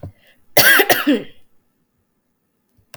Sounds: Throat clearing